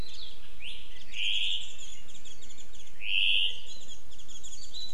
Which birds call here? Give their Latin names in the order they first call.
Zosterops japonicus